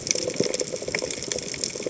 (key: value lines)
label: biophony
recorder: HydroMoth